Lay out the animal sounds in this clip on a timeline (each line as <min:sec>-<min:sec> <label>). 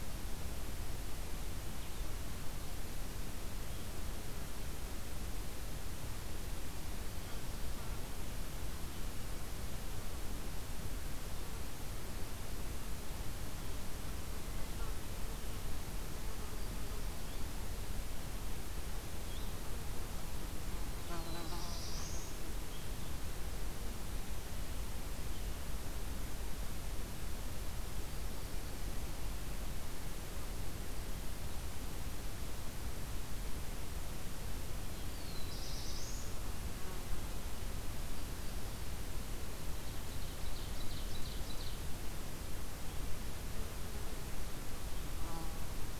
0:21.0-0:22.4 Black-throated Blue Warbler (Setophaga caerulescens)
0:35.0-0:36.3 Black-throated Blue Warbler (Setophaga caerulescens)
0:39.8-0:41.9 Ovenbird (Seiurus aurocapilla)